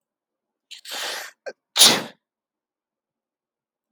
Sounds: Sneeze